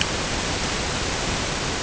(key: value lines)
label: ambient
recorder: HydroMoth